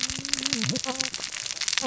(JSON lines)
{"label": "biophony, cascading saw", "recorder": "SoundTrap 600 or HydroMoth"}